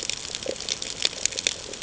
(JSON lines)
{"label": "ambient", "recorder": "HydroMoth"}